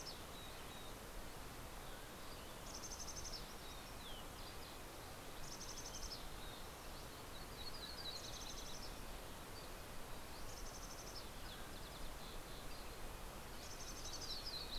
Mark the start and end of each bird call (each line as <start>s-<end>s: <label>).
0.0s-14.8s: Red-breasted Nuthatch (Sitta canadensis)
1.5s-2.6s: Mountain Quail (Oreortyx pictus)
1.7s-14.8s: Mountain Chickadee (Poecile gambeli)
1.8s-6.7s: Green-tailed Towhee (Pipilo chlorurus)
6.1s-9.4s: Yellow-rumped Warbler (Setophaga coronata)
9.4s-9.9s: Dusky Flycatcher (Empidonax oberholseri)
10.1s-13.6s: Green-tailed Towhee (Pipilo chlorurus)
10.6s-12.7s: Mountain Quail (Oreortyx pictus)
13.3s-14.8s: Yellow-rumped Warbler (Setophaga coronata)